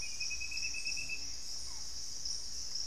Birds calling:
Buff-throated Woodcreeper (Xiphorhynchus guttatus), Barred Forest-Falcon (Micrastur ruficollis), Gray Antbird (Cercomacra cinerascens)

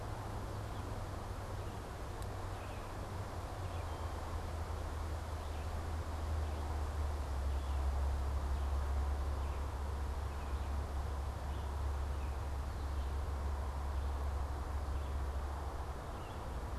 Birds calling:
Red-eyed Vireo (Vireo olivaceus), Baltimore Oriole (Icterus galbula)

